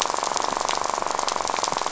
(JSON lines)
{"label": "biophony, rattle", "recorder": "SoundTrap 500"}